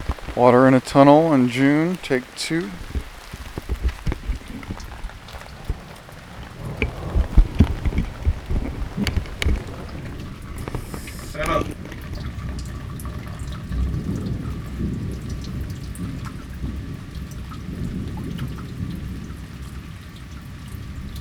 Is it dry in this area?
no